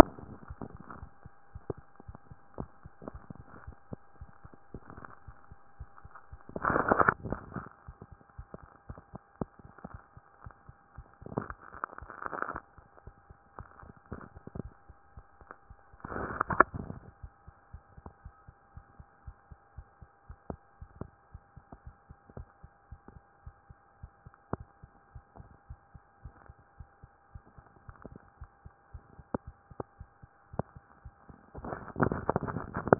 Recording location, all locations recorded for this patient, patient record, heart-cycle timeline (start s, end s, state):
tricuspid valve (TV)
aortic valve (AV)+pulmonary valve (PV)+pulmonary valve (PV)+tricuspid valve (TV)+tricuspid valve (TV)+mitral valve (MV)
#Age: Child
#Sex: Male
#Height: 130.0 cm
#Weight: 25.8 kg
#Pregnancy status: False
#Murmur: Present
#Murmur locations: aortic valve (AV)+pulmonary valve (PV)+tricuspid valve (TV)
#Most audible location: pulmonary valve (PV)
#Systolic murmur timing: Early-systolic
#Systolic murmur shape: Decrescendo
#Systolic murmur grading: I/VI
#Systolic murmur pitch: Low
#Systolic murmur quality: Blowing
#Diastolic murmur timing: nan
#Diastolic murmur shape: nan
#Diastolic murmur grading: nan
#Diastolic murmur pitch: nan
#Diastolic murmur quality: nan
#Outcome: Abnormal
#Campaign: 2014 screening campaign
0.00	3.09	unannotated
3.09	3.12	diastole
3.12	3.22	S1
3.22	3.36	systole
3.36	3.44	S2
3.44	3.64	diastole
3.64	3.76	S1
3.76	3.90	systole
3.90	4.00	S2
4.00	4.20	diastole
4.20	4.30	S1
4.30	4.44	systole
4.44	4.54	S2
4.54	4.74	diastole
4.74	4.82	S1
4.82	4.96	systole
4.96	5.06	S2
5.06	5.26	diastole
5.26	5.36	S1
5.36	5.50	systole
5.50	5.58	S2
5.58	5.78	diastole
5.78	5.90	S1
5.90	6.02	systole
6.02	6.12	S2
6.12	6.36	diastole
6.36	32.99	unannotated